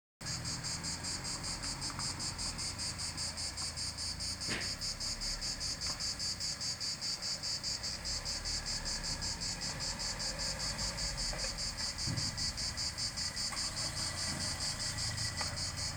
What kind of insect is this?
cicada